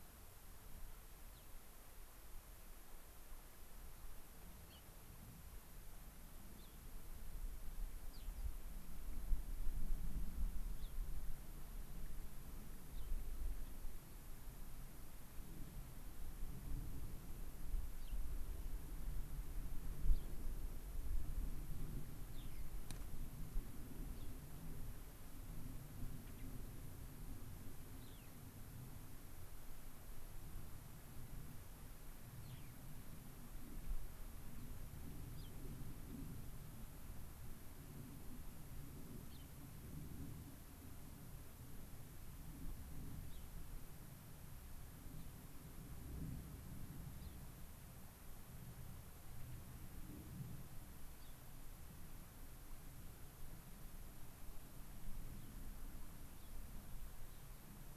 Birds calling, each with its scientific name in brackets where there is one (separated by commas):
Gray-crowned Rosy-Finch (Leucosticte tephrocotis)